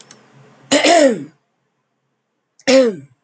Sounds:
Throat clearing